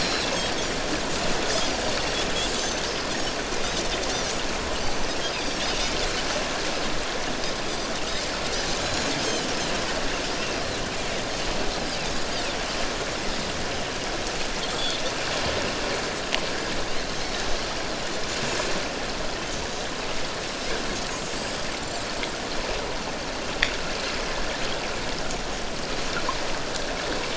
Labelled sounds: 1.5	1.8	Pacific white-sided dolphin, 4.8 to 5.2 kHz
2.6	2.8	Pacific white-sided dolphin, 5.9 to 6.2 kHz
4.1	4.4	Pacific white-sided dolphin, 5.6 to 6.1 kHz
5.3	5.6	Pacific white-sided dolphin, 4.6 to 5.0 kHz
8.8	9.1	Pacific white-sided dolphin, 4.0 to 7.0 kHz
14.7	15.0	Pacific white-sided dolphin, 3.2 to 3.6 kHz
21.4	22.0	Pacific white-sided dolphin, 7.1 to 8.0 kHz

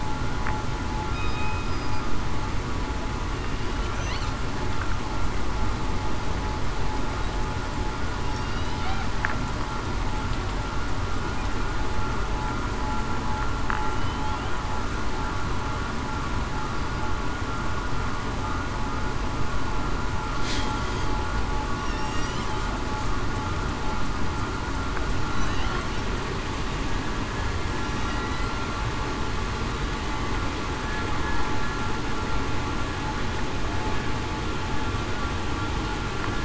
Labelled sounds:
1.1	1.7	killer whale, southern resident, 2.5 to 3.8 kHz
8.4	8.7	killer whale, southern resident, 2.8 to 3.0 kHz
13.9	14.3	killer whale, southern resident, 2.9 to 3.3 kHz
21.8	22.2	killer whale, southern resident, 2.7 to 2.9 kHz
25.3	25.7	killer whale, southern resident, 3.9 to 4.0 kHz

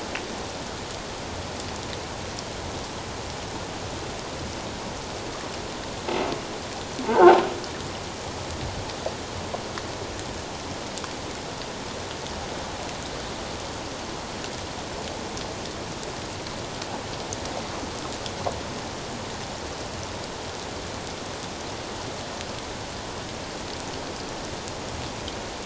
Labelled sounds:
7.0	7.4	croaking sound likely from a nearby submerged object, 0.78 to 1.6 kHz

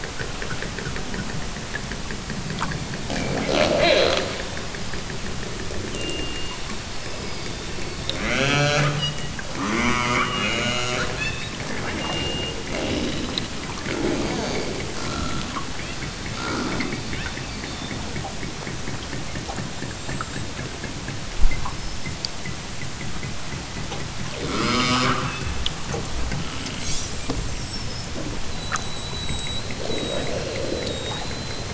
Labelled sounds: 2.9	4.5	killer whale, southern Alaska resident, 0 to 4.6 kHz
6.9	7.7	killer whale, southern Alaska resident, 2.7 to 6.1 kHz
8.0	11.6	killer whale, southern Alaska resident, 0 to 8.0 kHz
12.6	13.4	killer whale, southern Alaska resident, 0 to 4.4 kHz
13.7	18.1	killer whale, southern Alaska resident, 0 to 6.2 kHz
24.3	25.9	killer whale, southern Alaska resident, 0 to 8.0 kHz
29.8	31.5	killer whale, southern Alaska resident, 0 to 1.2 kHz

